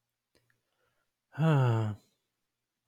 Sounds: Sigh